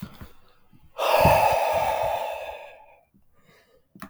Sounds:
Sigh